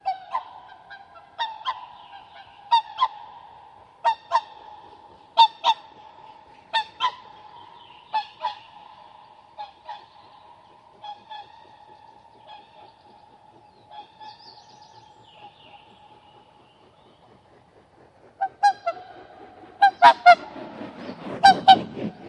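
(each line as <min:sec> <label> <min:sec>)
0:00.0 A bird calls with two short chirps repeated at regular, brief intervals. 0:15.8
0:18.3 A bird calls with three chirps repeating at short intervals. 0:22.3
0:20.4 The wings of a bird flap as it gets ready to fly. 0:21.4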